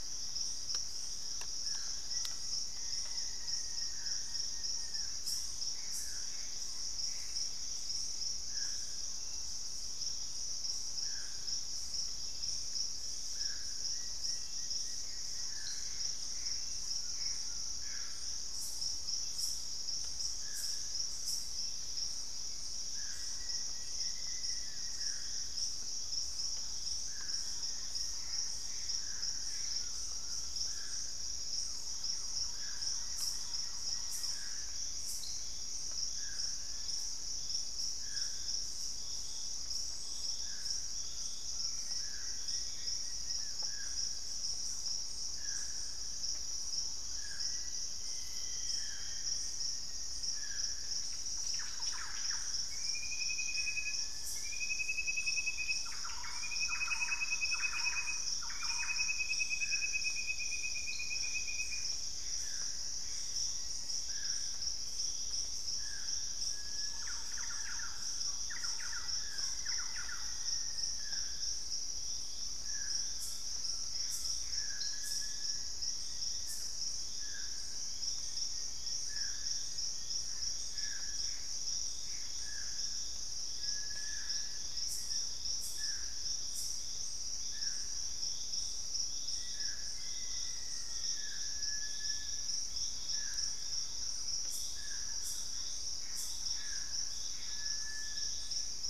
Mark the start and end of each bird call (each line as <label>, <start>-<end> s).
Plain-winged Antshrike (Thamnophilus schistaceus), 0.0-5.3 s
Black-faced Antthrush (Formicarius analis), 1.9-4.0 s
Purple-throated Fruitcrow (Querula purpurata), 5.4-9.9 s
Gray Antbird (Cercomacra cinerascens), 5.6-7.6 s
Plain-winged Antshrike (Thamnophilus schistaceus), 13.8-16.2 s
Gray Antbird (Cercomacra cinerascens), 15.2-18.4 s
Collared Trogon (Trogon collaris), 16.8-18.3 s
Purple-throated Fruitcrow (Querula purpurata), 18.1-30.1 s
Plain-winged Antshrike (Thamnophilus schistaceus), 23.0-34.9 s
Black-faced Antthrush (Formicarius analis), 23.3-25.7 s
Gray Antbird (Cercomacra cinerascens), 28.0-30.4 s
Collared Trogon (Trogon collaris), 29.6-31.1 s
Thrush-like Wren (Campylorhynchus turdinus), 31.4-34.7 s
unidentified bird, 36.5-37.0 s
Purple-throated Fruitcrow (Querula purpurata), 38.5-54.6 s
Collared Trogon (Trogon collaris), 40.7-42.8 s
unidentified bird, 41.3-43.4 s
Plain-winged Antshrike (Thamnophilus schistaceus), 41.6-44.0 s
Black-faced Antthrush (Formicarius analis), 47.3-51.0 s
Thrush-like Wren (Campylorhynchus turdinus), 51.1-59.7 s
Little Tinamou (Crypturellus soui), 53.3-54.8 s
Gray Antbird (Cercomacra cinerascens), 61.0-64.9 s
Purple-throated Fruitcrow (Querula purpurata), 61.1-67.1 s
Plain-winged Antshrike (Thamnophilus schistaceus), 63.0-64.9 s
Little Tinamou (Crypturellus soui), 66.4-67.5 s
Thrush-like Wren (Campylorhynchus turdinus), 66.8-71.3 s
Black-faced Antthrush (Formicarius analis), 68.7-71.5 s
Collared Trogon (Trogon collaris), 72.9-74.5 s
Gray Antbird (Cercomacra cinerascens), 73.7-76.0 s
Little Tinamou (Crypturellus soui), 74.4-75.8 s
Plain-winged Antshrike (Thamnophilus schistaceus), 74.6-85.5 s
Gray Antbird (Cercomacra cinerascens), 80.4-82.5 s
Little Tinamou (Crypturellus soui), 83.4-84.7 s
Black-faced Antthrush (Formicarius analis), 89.1-91.5 s
Collared Trogon (Trogon collaris), 90.0-91.5 s
Little Tinamou (Crypturellus soui), 90.9-92.7 s
Thrush-like Wren (Campylorhynchus turdinus), 92.3-97.0 s
Gray Antbird (Cercomacra cinerascens), 95.2-97.9 s
Little Tinamou (Crypturellus soui), 97.4-98.9 s